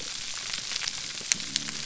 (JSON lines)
{"label": "biophony", "recorder": "SoundTrap 300"}